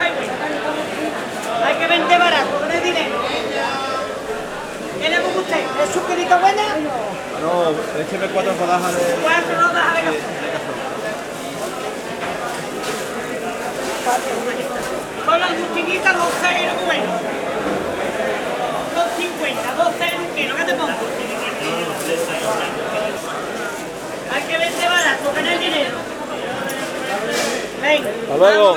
Can a goat be heard making noise?
no